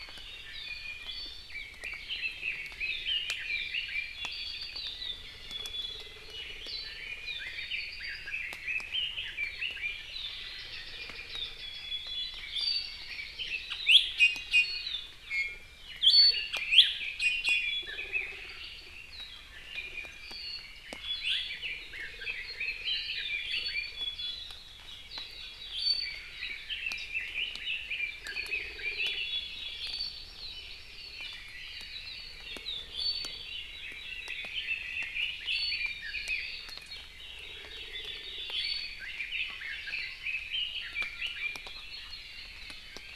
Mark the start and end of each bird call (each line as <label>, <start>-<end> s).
Iiwi (Drepanis coccinea), 0.4-1.4 s
Red-billed Leiothrix (Leiothrix lutea), 1.4-4.1 s
Apapane (Himatione sanguinea), 4.1-5.1 s
Iiwi (Drepanis coccinea), 5.4-6.1 s
Red-billed Leiothrix (Leiothrix lutea), 6.2-10.0 s
Iiwi (Drepanis coccinea), 10.9-12.9 s
Hawaii Amakihi (Chlorodrepanis virens), 12.2-13.4 s
Iiwi (Drepanis coccinea), 13.8-14.8 s
Iiwi (Drepanis coccinea), 15.3-16.8 s
Red-billed Leiothrix (Leiothrix lutea), 15.9-18.3 s
Iiwi (Drepanis coccinea), 17.1-17.9 s
Iiwi (Drepanis coccinea), 19.6-20.2 s
Iiwi (Drepanis coccinea), 21.0-21.4 s
Red-billed Leiothrix (Leiothrix lutea), 21.3-23.9 s
Iiwi (Drepanis coccinea), 23.4-24.4 s
Hawaii Amakihi (Chlorodrepanis virens), 24.8-25.7 s
Iiwi (Drepanis coccinea), 25.7-26.2 s
Red-billed Leiothrix (Leiothrix lutea), 26.4-29.2 s
Iiwi (Drepanis coccinea), 28.9-29.9 s
Hawaii Amakihi (Chlorodrepanis virens), 29.4-31.0 s
Iiwi (Drepanis coccinea), 32.6-33.3 s
Hawaii Amakihi (Chlorodrepanis virens), 33.3-34.4 s
Red-billed Leiothrix (Leiothrix lutea), 33.8-36.5 s
Iiwi (Drepanis coccinea), 35.4-36.0 s
Hawaii Amakihi (Chlorodrepanis virens), 36.8-38.4 s
Iiwi (Drepanis coccinea), 38.5-38.9 s
Red-billed Leiothrix (Leiothrix lutea), 39.0-41.6 s